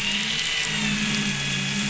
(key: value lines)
label: anthrophony, boat engine
recorder: SoundTrap 500